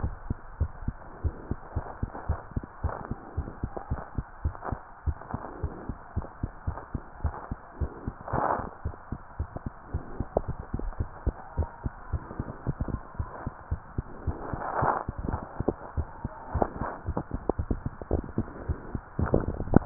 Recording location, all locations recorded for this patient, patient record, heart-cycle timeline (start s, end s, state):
tricuspid valve (TV)
aortic valve (AV)+pulmonary valve (PV)+tricuspid valve (TV)+mitral valve (MV)
#Age: Child
#Sex: Female
#Height: 113.0 cm
#Weight: 22.5 kg
#Pregnancy status: False
#Murmur: Absent
#Murmur locations: nan
#Most audible location: nan
#Systolic murmur timing: nan
#Systolic murmur shape: nan
#Systolic murmur grading: nan
#Systolic murmur pitch: nan
#Systolic murmur quality: nan
#Diastolic murmur timing: nan
#Diastolic murmur shape: nan
#Diastolic murmur grading: nan
#Diastolic murmur pitch: nan
#Diastolic murmur quality: nan
#Outcome: Normal
#Campaign: 2015 screening campaign
0.00	0.15	S1
0.15	0.28	systole
0.28	0.40	S2
0.40	0.56	diastole
0.56	0.72	S1
0.72	0.82	systole
0.82	0.98	S2
0.98	1.18	diastole
1.18	1.36	S1
1.36	1.48	systole
1.48	1.58	S2
1.58	1.74	diastole
1.74	1.84	S1
1.84	1.98	systole
1.98	2.10	S2
2.10	2.26	diastole
2.26	2.40	S1
2.40	2.52	systole
2.52	2.64	S2
2.64	2.82	diastole
2.82	2.96	S1
2.96	3.08	systole
3.08	3.18	S2
3.18	3.36	diastole
3.36	3.48	S1
3.48	3.60	systole
3.60	3.72	S2
3.72	3.90	diastole
3.90	4.02	S1
4.02	4.14	systole
4.14	4.26	S2
4.26	4.42	diastole
4.42	4.56	S1
4.56	4.68	systole
4.68	4.82	S2
4.82	5.04	diastole
5.04	5.16	S1
5.16	5.30	systole
5.30	5.42	S2
5.42	5.62	diastole
5.62	5.72	S1
5.72	5.88	systole
5.88	5.98	S2
5.98	6.16	diastole
6.16	6.28	S1
6.28	6.42	systole
6.42	6.52	S2
6.52	6.66	diastole
6.66	6.78	S1
6.78	6.90	systole
6.90	7.04	S2
7.04	7.22	diastole
7.22	7.36	S1
7.36	7.50	systole
7.50	7.58	S2
7.58	7.78	diastole
7.78	7.90	S1
7.90	8.02	systole
8.02	8.14	S2
8.14	8.32	diastole
8.32	8.48	S1
8.48	8.60	systole
8.60	8.68	S2
8.68	8.84	diastole
8.84	8.94	S1
8.94	9.08	systole
9.08	9.20	S2
9.20	9.38	diastole
9.38	9.48	S1
9.48	9.62	systole
9.62	9.72	S2
9.72	9.92	diastole
9.92	10.02	S1
10.02	10.18	systole
10.18	10.28	S2
10.28	10.44	diastole
10.44	10.56	S1
10.56	10.70	systole
10.70	10.82	S2
10.82	10.98	diastole
10.98	11.12	S1
11.12	11.26	systole
11.26	11.38	S2
11.38	11.56	diastole
11.56	11.68	S1
11.68	11.84	systole
11.84	11.94	S2
11.94	12.12	diastole
12.12	12.26	S1
12.26	12.38	systole
12.38	12.48	S2
12.48	12.66	diastole
12.66	12.76	S1
12.76	12.88	systole
12.88	13.02	S2
13.02	13.18	diastole
13.18	13.28	S1
13.28	13.42	systole
13.42	13.52	S2
13.52	13.68	diastole
13.68	13.80	S1
13.80	13.94	systole
13.94	14.08	S2
14.08	14.26	diastole
14.26	14.40	S1
14.40	14.52	systole
14.52	14.62	S2
14.62	14.80	diastole
14.80	14.96	S1
14.96	15.08	systole
15.08	15.16	S2
15.16	15.32	diastole
15.32	15.48	S1
15.48	15.60	systole
15.60	15.68	S2
15.68	15.96	diastole
15.96	16.08	S1
16.08	16.20	systole
16.20	16.34	S2
16.34	16.54	diastole
16.54	16.68	S1
16.68	16.80	systole
16.80	16.90	S2
16.90	17.06	diastole
17.06	17.18	S1
17.18	17.30	systole
17.30	17.42	S2
17.42	17.56	diastole
17.56	17.68	S1
17.68	17.84	systole
17.84	17.94	S2
17.94	18.12	diastole
18.12	18.26	S1
18.26	18.36	systole
18.36	18.48	S2
18.48	18.64	diastole
18.64	18.78	S1
18.78	18.90	systole
18.90	19.02	S2
19.02	19.19	diastole